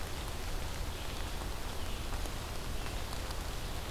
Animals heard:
forest ambience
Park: Marsh-Billings-Rockefeller National Historical Park